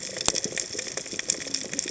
{"label": "biophony, cascading saw", "recorder": "HydroMoth"}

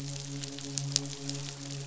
{"label": "biophony, midshipman", "recorder": "SoundTrap 500"}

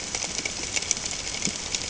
{"label": "ambient", "recorder": "HydroMoth"}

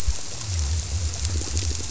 {"label": "biophony, squirrelfish (Holocentrus)", "recorder": "SoundTrap 300"}
{"label": "biophony", "recorder": "SoundTrap 300"}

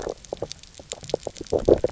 {"label": "biophony, low growl", "recorder": "SoundTrap 300"}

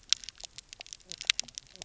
{"label": "biophony, knock croak", "recorder": "SoundTrap 300"}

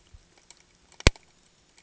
{"label": "ambient", "recorder": "HydroMoth"}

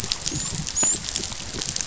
{"label": "biophony, dolphin", "recorder": "SoundTrap 500"}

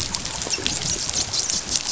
{"label": "biophony, dolphin", "recorder": "SoundTrap 500"}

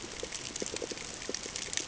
{"label": "ambient", "recorder": "HydroMoth"}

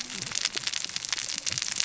{"label": "biophony, cascading saw", "recorder": "SoundTrap 600 or HydroMoth"}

